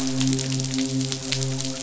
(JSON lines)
{"label": "biophony, midshipman", "recorder": "SoundTrap 500"}